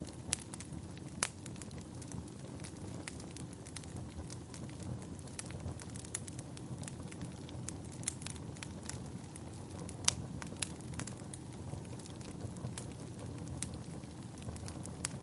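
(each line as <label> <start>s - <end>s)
A fireplace crackles quietly nearby. 0.0s - 15.2s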